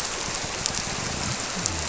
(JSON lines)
{"label": "biophony", "recorder": "SoundTrap 300"}